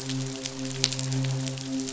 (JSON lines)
{"label": "biophony, midshipman", "recorder": "SoundTrap 500"}